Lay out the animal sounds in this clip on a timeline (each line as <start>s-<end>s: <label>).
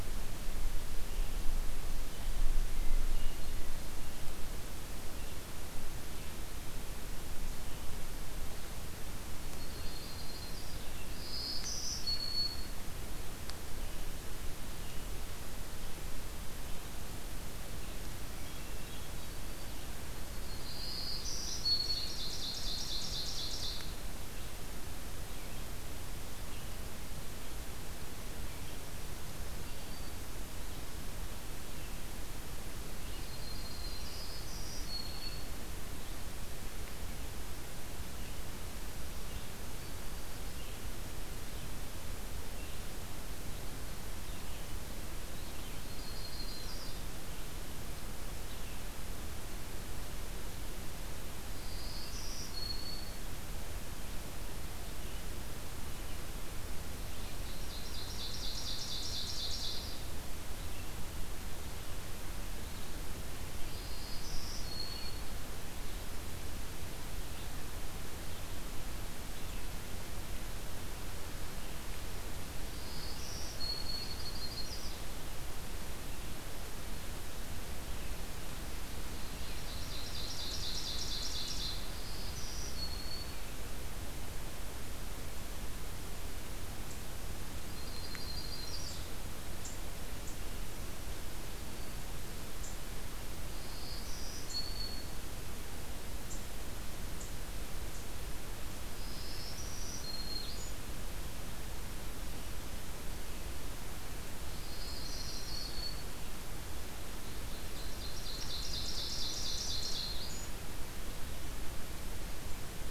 0.0s-39.6s: Red-eyed Vireo (Vireo olivaceus)
2.7s-4.0s: Hermit Thrush (Catharus guttatus)
9.5s-10.8s: Yellow-rumped Warbler (Setophaga coronata)
11.1s-12.8s: Black-throated Green Warbler (Setophaga virens)
18.3s-19.8s: Hermit Thrush (Catharus guttatus)
20.2s-21.3s: Yellow-rumped Warbler (Setophaga coronata)
20.5s-22.1s: Black-throated Green Warbler (Setophaga virens)
21.2s-23.9s: Ovenbird (Seiurus aurocapilla)
28.5s-30.2s: Black-throated Green Warbler (Setophaga virens)
32.9s-34.5s: Yellow-rumped Warbler (Setophaga coronata)
34.1s-35.6s: Black-throated Green Warbler (Setophaga virens)
39.7s-40.5s: Black-throated Green Warbler (Setophaga virens)
40.5s-49.0s: Red-eyed Vireo (Vireo olivaceus)
45.6s-47.0s: Yellow-rumped Warbler (Setophaga coronata)
51.6s-53.3s: Black-throated Green Warbler (Setophaga virens)
54.7s-79.5s: Red-eyed Vireo (Vireo olivaceus)
57.4s-60.0s: Ovenbird (Seiurus aurocapilla)
63.7s-65.4s: Black-throated Green Warbler (Setophaga virens)
72.7s-74.3s: Black-throated Green Warbler (Setophaga virens)
73.8s-75.0s: Yellow-rumped Warbler (Setophaga coronata)
79.2s-81.9s: Ovenbird (Seiurus aurocapilla)
81.8s-83.5s: Black-throated Green Warbler (Setophaga virens)
87.7s-89.1s: Yellow-rumped Warbler (Setophaga coronata)
91.5s-92.1s: Black-throated Green Warbler (Setophaga virens)
93.5s-95.2s: Black-throated Green Warbler (Setophaga virens)
99.0s-100.7s: Black-throated Green Warbler (Setophaga virens)
104.4s-106.0s: Black-throated Green Warbler (Setophaga virens)
104.6s-105.8s: Yellow-rumped Warbler (Setophaga coronata)
107.4s-110.4s: Ovenbird (Seiurus aurocapilla)
109.0s-110.5s: Black-throated Green Warbler (Setophaga virens)